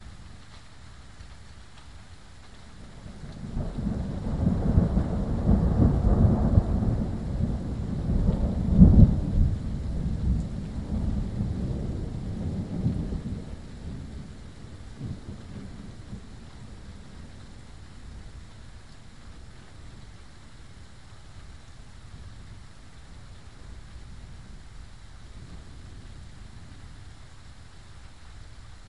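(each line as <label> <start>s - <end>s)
Faint thunder rumbles nearby. 3.2s - 8.6s
Strong thunder roars nearby. 8.6s - 9.6s
Thunder sounds weaken and slowly fade away. 9.7s - 15.3s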